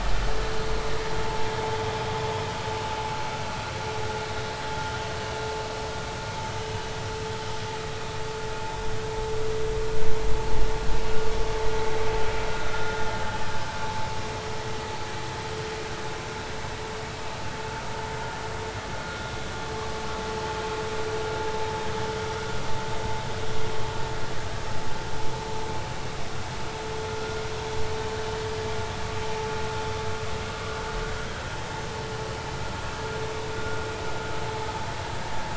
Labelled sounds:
19.0	19.3	vessel noise, 1.4 to 1.5 kHz
33.6	33.8	vessel noise, 1.4 to 1.5 kHz

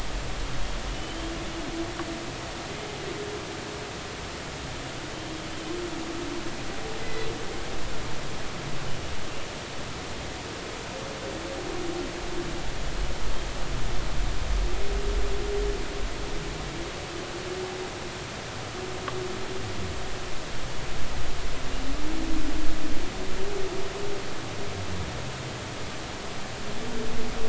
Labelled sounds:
7.0	7.3	humpback whale, 1.9 to 4.1 kHz

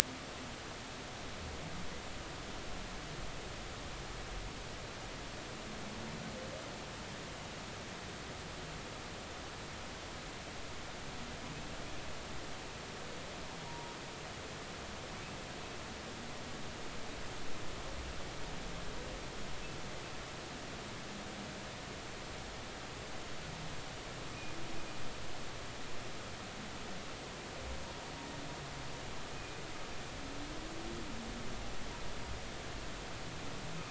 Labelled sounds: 13.7	14.0	humpback whale, 0.90 to 0.99 kHz
29.3	29.6	humpback whale, 2.4 to 2.5 kHz

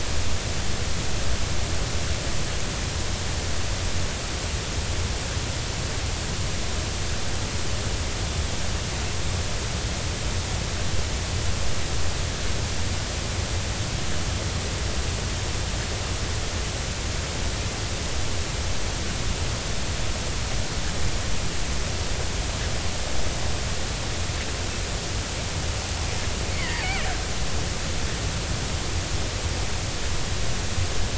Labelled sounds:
26.5	27.2	killer whale, Bigg's (transient), 0.80 to 2.4 kHz

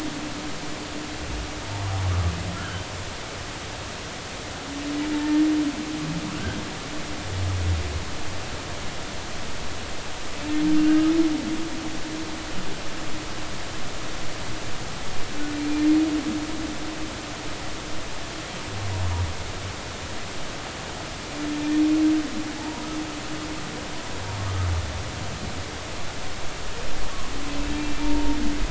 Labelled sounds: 2.5	2.9	humpback whale, 1.3 to 1.8 kHz
5.2	5.5	humpback whale, 1.7 to 1.9 kHz
15.6	15.9	humpback whale, 2.3 to 2.5 kHz
22.6	22.9	humpback whale, 0.80 to 1.0 kHz

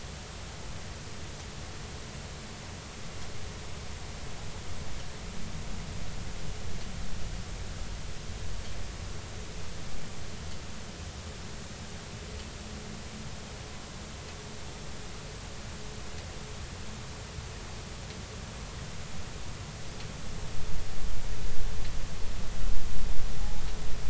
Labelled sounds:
23.4	23.6	humpback whale, 0.80 to 0.90 kHz

